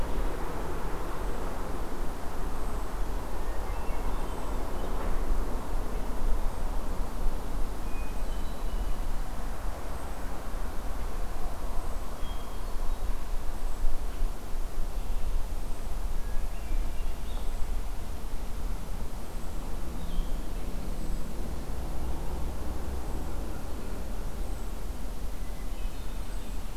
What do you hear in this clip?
Hermit Thrush, Blue-headed Vireo